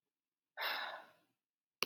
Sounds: Sigh